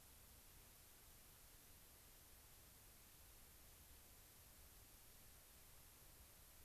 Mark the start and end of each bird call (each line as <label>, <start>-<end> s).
White-crowned Sparrow (Zonotrichia leucophrys), 1.5-1.7 s